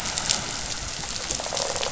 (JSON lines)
{"label": "biophony", "recorder": "SoundTrap 500"}